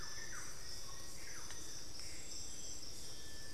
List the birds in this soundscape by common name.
Thrush-like Wren, Plain-winged Antshrike, Gray Antbird